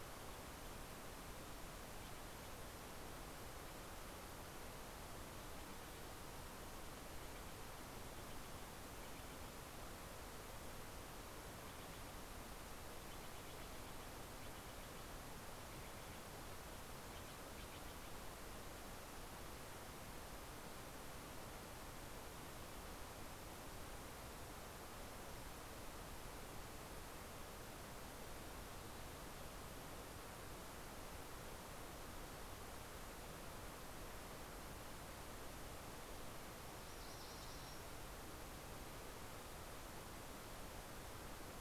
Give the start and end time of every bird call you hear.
[4.25, 19.25] Steller's Jay (Cyanocitta stelleri)
[36.35, 38.25] MacGillivray's Warbler (Geothlypis tolmiei)

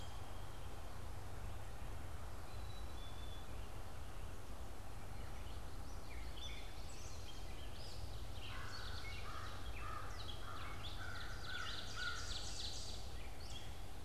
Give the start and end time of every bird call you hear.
[2.50, 3.50] Black-capped Chickadee (Poecile atricapillus)
[5.10, 14.00] Gray Catbird (Dumetella carolinensis)
[5.60, 7.60] Common Yellowthroat (Geothlypis trichas)
[8.20, 12.70] American Crow (Corvus brachyrhynchos)
[10.50, 13.30] Ovenbird (Seiurus aurocapilla)

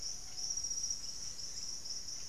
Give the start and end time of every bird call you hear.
[0.00, 2.29] Blue-headed Parrot (Pionus menstruus)

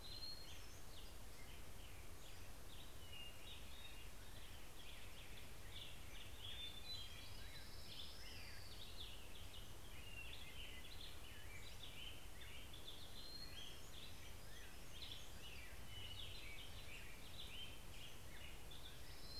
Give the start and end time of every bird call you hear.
[0.00, 1.39] Hermit Thrush (Catharus guttatus)
[0.00, 19.39] Black-headed Grosbeak (Pheucticus melanocephalus)
[1.49, 2.99] Pacific-slope Flycatcher (Empidonax difficilis)
[5.29, 7.59] Hermit Thrush (Catharus guttatus)
[5.89, 10.19] Orange-crowned Warbler (Leiothlypis celata)
[10.49, 12.29] Pacific-slope Flycatcher (Empidonax difficilis)
[11.49, 14.89] Hermit Thrush (Catharus guttatus)
[12.79, 17.29] Hermit Warbler (Setophaga occidentalis)
[17.69, 19.39] Hermit Thrush (Catharus guttatus)
[18.09, 19.39] Orange-crowned Warbler (Leiothlypis celata)

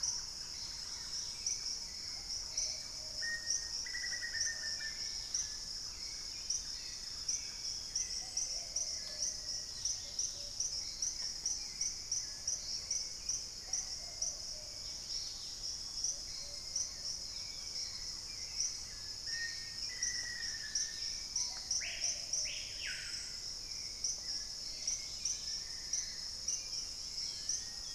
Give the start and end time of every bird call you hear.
[0.00, 9.05] Thrush-like Wren (Campylorhynchus turdinus)
[0.00, 10.95] Plumbeous Pigeon (Patagioenas plumbea)
[0.00, 27.95] Hauxwell's Thrush (Turdus hauxwelli)
[0.35, 10.65] Dusky-capped Greenlet (Pachysylvia hypoxantha)
[3.05, 10.25] Black-faced Antthrush (Formicarius analis)
[6.05, 8.65] Chestnut-winged Foliage-gleaner (Dendroma erythroptera)
[13.55, 16.65] Plumbeous Pigeon (Patagioenas plumbea)
[14.65, 15.85] Dusky-capped Greenlet (Pachysylvia hypoxantha)
[17.15, 17.75] unidentified bird
[19.05, 21.25] Black-faced Antthrush (Formicarius analis)
[20.35, 25.85] Dusky-capped Greenlet (Pachysylvia hypoxantha)
[21.05, 23.45] Screaming Piha (Lipaugus vociferans)
[21.35, 22.75] Plumbeous Pigeon (Patagioenas plumbea)
[25.15, 27.95] Long-billed Woodcreeper (Nasica longirostris)
[26.55, 27.95] Long-winged Antwren (Myrmotherula longipennis)

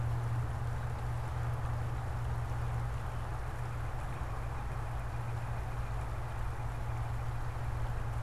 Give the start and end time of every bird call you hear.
[2.29, 8.19] Northern Cardinal (Cardinalis cardinalis)

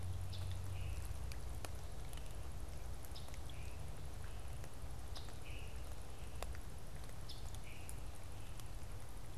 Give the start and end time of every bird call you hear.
[0.00, 8.00] Scarlet Tanager (Piranga olivacea)

